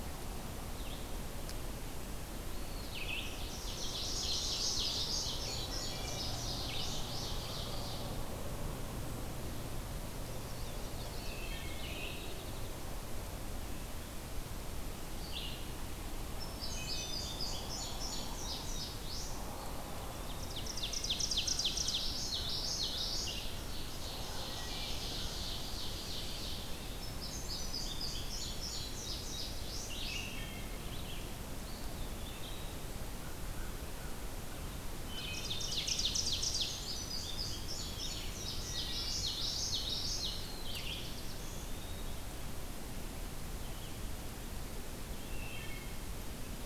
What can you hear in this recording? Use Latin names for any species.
Vireo olivaceus, Contopus virens, Seiurus aurocapilla, Geothlypis trichas, Passerina cyanea, Spizella pusilla, Hylocichla mustelina, Corvus brachyrhynchos, Setophaga caerulescens